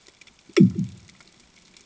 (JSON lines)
{"label": "anthrophony, bomb", "recorder": "HydroMoth"}